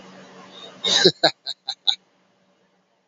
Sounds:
Laughter